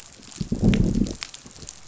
{"label": "biophony, growl", "recorder": "SoundTrap 500"}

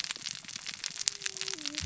{"label": "biophony, cascading saw", "recorder": "SoundTrap 600 or HydroMoth"}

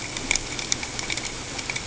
{"label": "ambient", "recorder": "HydroMoth"}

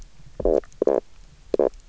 {"label": "biophony, knock croak", "recorder": "SoundTrap 300"}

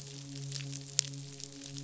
{"label": "biophony, midshipman", "recorder": "SoundTrap 500"}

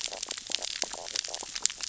{"label": "biophony, stridulation", "recorder": "SoundTrap 600 or HydroMoth"}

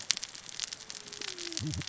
{"label": "biophony, cascading saw", "recorder": "SoundTrap 600 or HydroMoth"}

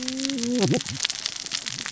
{"label": "biophony, cascading saw", "recorder": "SoundTrap 600 or HydroMoth"}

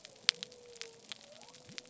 {"label": "biophony", "recorder": "SoundTrap 300"}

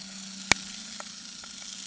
{"label": "anthrophony, boat engine", "recorder": "HydroMoth"}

